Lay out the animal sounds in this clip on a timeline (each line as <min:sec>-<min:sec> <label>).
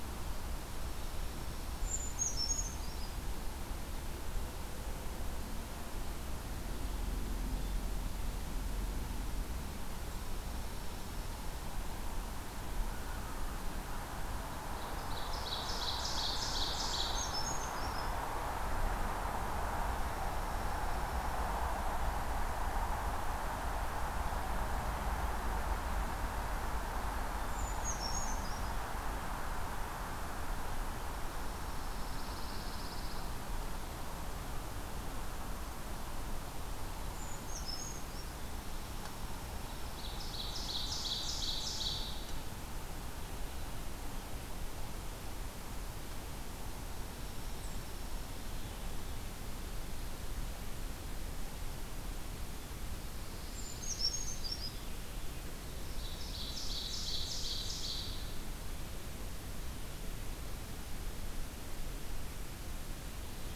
0:01.5-0:03.1 Brown Creeper (Certhia americana)
0:14.6-0:17.3 Ovenbird (Seiurus aurocapilla)
0:16.9-0:18.5 Brown Creeper (Certhia americana)
0:19.6-0:21.5 Dark-eyed Junco (Junco hyemalis)
0:27.2-0:29.1 Brown Creeper (Certhia americana)
0:31.9-0:33.4 Pine Warbler (Setophaga pinus)
0:36.8-0:38.7 Brown Creeper (Certhia americana)
0:39.7-0:42.5 Ovenbird (Seiurus aurocapilla)
0:46.8-0:48.5 Dark-eyed Junco (Junco hyemalis)
0:52.9-0:54.6 Pine Warbler (Setophaga pinus)
0:53.1-0:55.2 Brown Creeper (Certhia americana)
0:55.5-0:58.7 Ovenbird (Seiurus aurocapilla)